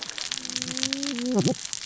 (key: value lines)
label: biophony, cascading saw
recorder: SoundTrap 600 or HydroMoth